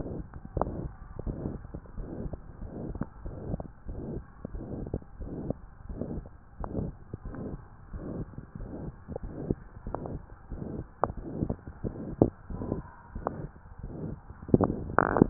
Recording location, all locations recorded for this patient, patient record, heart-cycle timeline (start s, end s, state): tricuspid valve (TV)
aortic valve (AV)+pulmonary valve (PV)+tricuspid valve (TV)+mitral valve (MV)
#Age: Adolescent
#Sex: Male
#Height: 151.0 cm
#Weight: 53.6 kg
#Pregnancy status: False
#Murmur: Present
#Murmur locations: aortic valve (AV)+mitral valve (MV)+pulmonary valve (PV)+tricuspid valve (TV)
#Most audible location: pulmonary valve (PV)
#Systolic murmur timing: Holosystolic
#Systolic murmur shape: Plateau
#Systolic murmur grading: III/VI or higher
#Systolic murmur pitch: Medium
#Systolic murmur quality: Blowing
#Diastolic murmur timing: nan
#Diastolic murmur shape: nan
#Diastolic murmur grading: nan
#Diastolic murmur pitch: nan
#Diastolic murmur quality: nan
#Outcome: Abnormal
#Campaign: 2015 screening campaign
0.00	0.26	unannotated
0.26	0.56	diastole
0.56	0.72	S1
0.72	0.78	systole
0.78	0.94	S2
0.94	1.24	diastole
1.24	1.38	S1
1.38	1.46	systole
1.46	1.62	S2
1.62	1.96	diastole
1.96	2.10	S1
2.10	2.18	systole
2.18	2.32	S2
2.32	2.60	diastole
2.60	2.70	S1
2.70	2.86	systole
2.86	2.95	S2
2.95	3.24	diastole
3.24	3.38	S1
3.38	3.46	systole
3.46	3.58	S2
3.58	3.86	diastole
3.86	3.96	S1
3.96	4.14	systole
4.14	4.24	S2
4.24	4.52	diastole
4.52	4.66	S1
4.66	4.79	systole
4.79	4.88	S2
4.88	5.18	diastole
5.18	5.32	S1
5.32	5.45	systole
5.45	5.53	S2
5.53	5.86	diastole
5.86	5.98	S1
5.98	6.13	systole
6.13	6.24	S2
6.24	6.58	diastole
6.58	6.72	S1
6.72	6.86	systole
6.86	6.96	S2
6.96	7.24	diastole
7.24	7.35	S1
7.35	7.48	systole
7.48	7.60	S2
7.60	7.92	diastole
7.92	8.01	S1
8.01	8.17	systole
8.17	8.28	S2
8.28	8.58	diastole
8.58	8.69	S1
8.69	8.84	systole
8.84	8.96	S2
8.96	9.22	diastole
9.22	9.32	S1
9.32	9.46	systole
9.46	9.60	S2
9.60	9.87	diastole
9.87	9.96	S1
9.96	10.10	systole
10.10	10.22	S2
10.22	10.50	diastole
10.50	10.63	S1
10.63	10.74	systole
10.74	10.86	S2
10.86	11.17	diastole
11.17	11.28	S1
11.28	11.40	systole
11.40	11.49	S2
11.49	11.83	diastole
11.83	11.93	S1
11.93	12.11	systole
12.11	12.20	S2
12.20	12.48	diastole
12.48	12.59	S1
12.59	12.74	systole
12.74	12.84	S2
12.84	13.14	diastole
13.14	13.28	S1
13.28	13.38	systole
13.38	13.50	S2
13.50	13.82	diastole
13.82	13.92	S1
13.92	14.08	systole
14.08	14.17	S2
14.17	14.56	diastole
14.56	15.30	unannotated